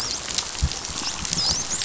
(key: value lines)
label: biophony, dolphin
recorder: SoundTrap 500